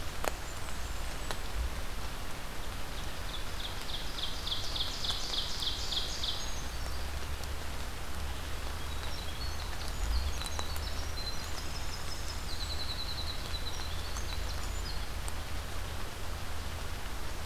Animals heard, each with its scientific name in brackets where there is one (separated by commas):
Winter Wren (Troglodytes hiemalis), Ovenbird (Seiurus aurocapilla), Brown Creeper (Certhia americana), Blackburnian Warbler (Setophaga fusca)